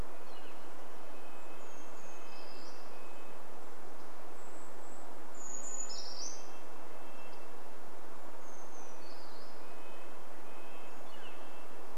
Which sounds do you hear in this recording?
Northern Flicker call, Brown Creeper song, Red-breasted Nuthatch song